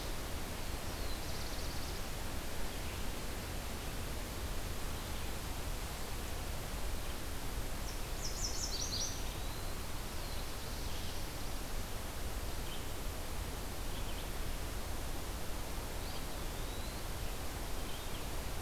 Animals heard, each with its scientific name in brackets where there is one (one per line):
Chestnut-sided Warbler (Setophaga pensylvanica)
Eastern Wood-Pewee (Contopus virens)
Black-throated Blue Warbler (Setophaga caerulescens)